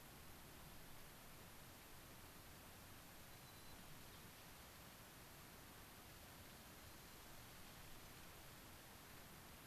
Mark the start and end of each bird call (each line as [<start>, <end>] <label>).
[3.30, 3.80] White-crowned Sparrow (Zonotrichia leucophrys)
[6.70, 7.20] White-crowned Sparrow (Zonotrichia leucophrys)